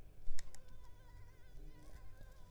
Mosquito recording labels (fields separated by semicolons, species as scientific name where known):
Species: Anopheles arabiensis; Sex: female; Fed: unfed; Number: one; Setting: cup